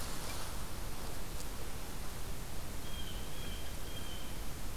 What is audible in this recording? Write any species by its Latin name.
Cyanocitta cristata